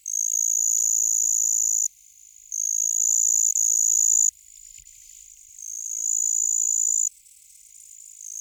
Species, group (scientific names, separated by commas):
Pteronemobius heydenii, Orthoptera